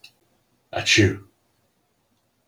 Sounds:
Sneeze